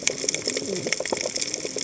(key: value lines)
label: biophony, cascading saw
recorder: HydroMoth